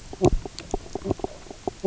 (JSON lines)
{"label": "biophony, knock croak", "recorder": "SoundTrap 300"}